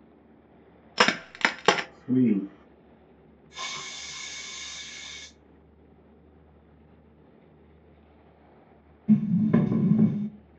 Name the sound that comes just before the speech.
crack